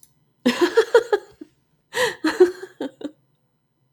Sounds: Laughter